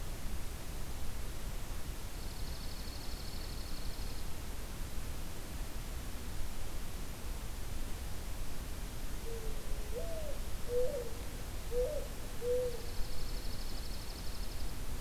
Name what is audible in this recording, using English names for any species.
Dark-eyed Junco, Mourning Dove